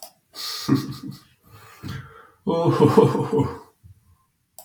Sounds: Laughter